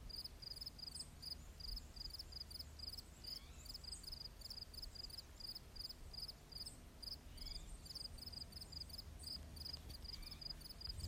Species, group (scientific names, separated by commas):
Gryllus pennsylvanicus, Orthoptera